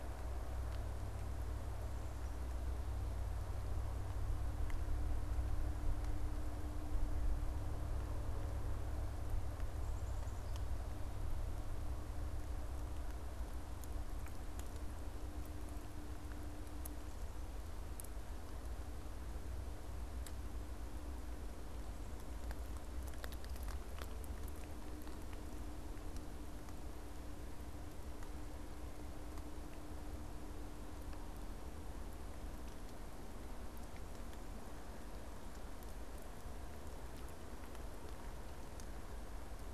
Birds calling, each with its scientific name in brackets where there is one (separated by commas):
Black-capped Chickadee (Poecile atricapillus)